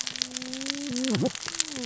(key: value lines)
label: biophony, cascading saw
recorder: SoundTrap 600 or HydroMoth